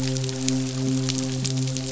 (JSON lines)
{"label": "biophony, midshipman", "recorder": "SoundTrap 500"}